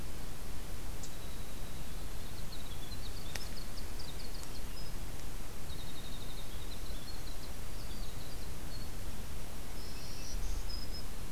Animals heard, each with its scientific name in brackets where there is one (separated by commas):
Winter Wren (Troglodytes hiemalis), Black-throated Green Warbler (Setophaga virens)